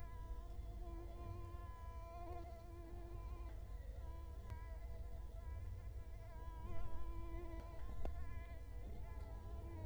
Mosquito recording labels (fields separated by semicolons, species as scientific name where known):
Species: Culex quinquefasciatus; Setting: cup